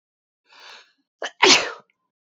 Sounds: Sneeze